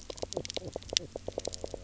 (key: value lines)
label: biophony, knock croak
recorder: SoundTrap 300